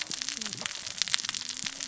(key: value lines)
label: biophony, cascading saw
recorder: SoundTrap 600 or HydroMoth